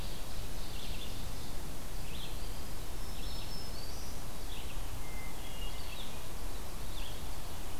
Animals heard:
Hermit Thrush (Catharus guttatus), Ovenbird (Seiurus aurocapilla), Red-eyed Vireo (Vireo olivaceus), Black-throated Green Warbler (Setophaga virens)

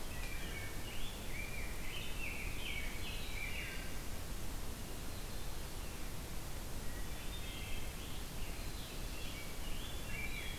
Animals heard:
Wood Thrush (Hylocichla mustelina), Rose-breasted Grosbeak (Pheucticus ludovicianus)

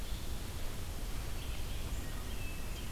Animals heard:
Red-eyed Vireo (Vireo olivaceus)

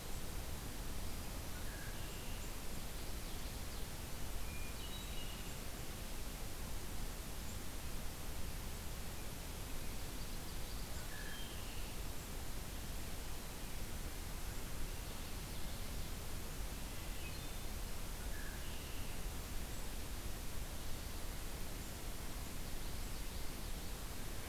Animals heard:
Hermit Thrush (Catharus guttatus), Red-winged Blackbird (Agelaius phoeniceus), Common Yellowthroat (Geothlypis trichas)

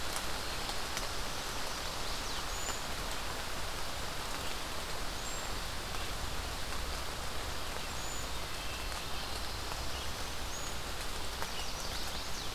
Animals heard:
Red-eyed Vireo (Vireo olivaceus), Wood Thrush (Hylocichla mustelina), Cedar Waxwing (Bombycilla cedrorum), Chestnut-sided Warbler (Setophaga pensylvanica)

